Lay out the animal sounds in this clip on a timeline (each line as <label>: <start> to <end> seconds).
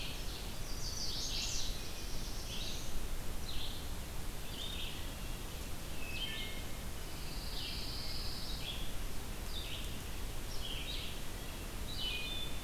Ovenbird (Seiurus aurocapilla): 0.0 to 0.7 seconds
Red-eyed Vireo (Vireo olivaceus): 0.0 to 12.6 seconds
Chestnut-sided Warbler (Setophaga pensylvanica): 0.3 to 1.7 seconds
Black-throated Blue Warbler (Setophaga caerulescens): 1.2 to 3.1 seconds
Wood Thrush (Hylocichla mustelina): 6.0 to 6.8 seconds
Pine Warbler (Setophaga pinus): 7.1 to 8.6 seconds
Wood Thrush (Hylocichla mustelina): 11.9 to 12.6 seconds